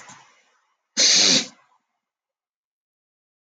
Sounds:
Sniff